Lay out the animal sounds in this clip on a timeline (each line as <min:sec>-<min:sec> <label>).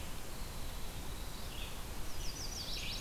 0:00.2-0:02.7 Winter Wren (Troglodytes hiemalis)
0:01.3-0:03.0 Red-eyed Vireo (Vireo olivaceus)
0:02.0-0:03.0 Chestnut-sided Warbler (Setophaga pensylvanica)